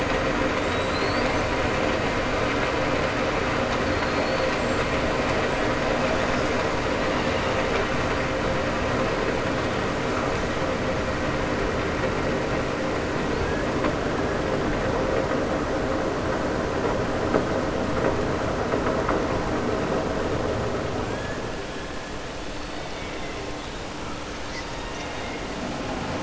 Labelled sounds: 24.7	25.4	killer whale, southern resident, 1.8 to 3.8 kHz

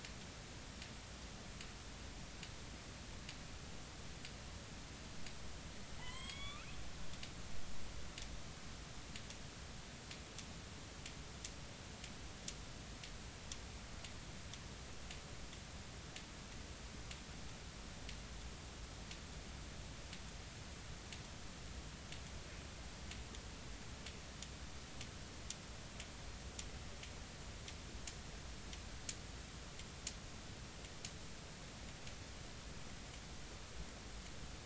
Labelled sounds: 6.0	6.7	killer whale, northern resident, A clan, AB subclan, call N16, 0.80 to 8.0 kHz

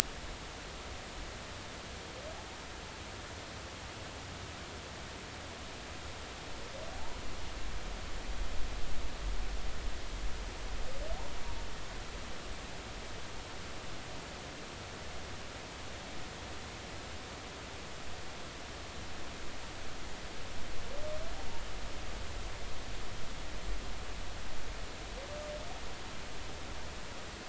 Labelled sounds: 6.9	7.2	humpback whale, 0.80 to 1.0 kHz

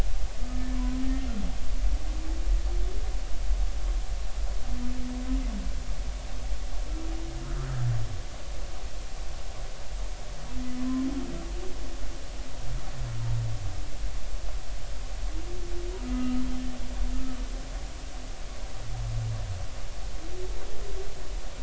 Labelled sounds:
0.5	0.8	humpback whale, 1.7 to 1.8 kHz
10.8	11.1	humpback whale, 0.99 to 1.2 kHz
16.0	16.4	humpback whale, 1.2 to 1.4 kHz

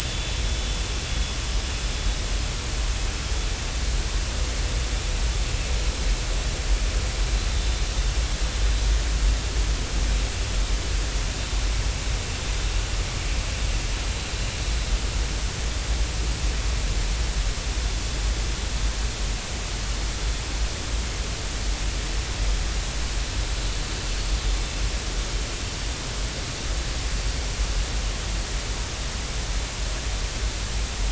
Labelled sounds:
25.6	25.9	vessel noise, 4.4 to 4.5 kHz

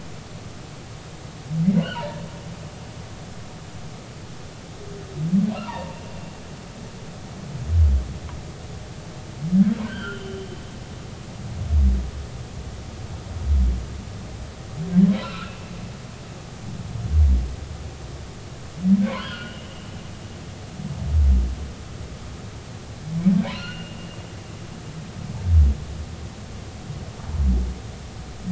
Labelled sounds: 1.8	2.2	humpback whale, 0.86 to 3.2 kHz
5.6	6.0	humpback whale, 0.83 to 1.1 kHz
9.8	10.4	humpback whale, 1.3 to 3.3 kHz
15.1	15.5	humpback whale, 1.2 to 4.2 kHz
19.1	19.7	humpback whale, 0.90 to 3.4 kHz
23.5	24.0	humpback whale, 1.3 to 4.4 kHz

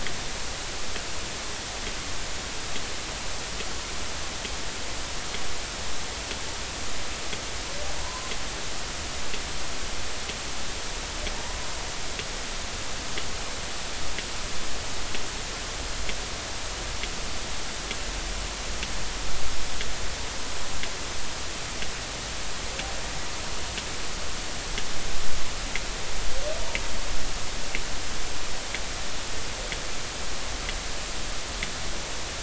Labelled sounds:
8.0	8.3	humpback whale, 0.93 to 1.1 kHz

